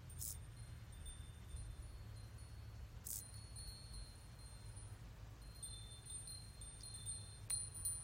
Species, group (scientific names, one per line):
Chorthippus brunneus
Orthoptera